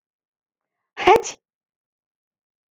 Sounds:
Sneeze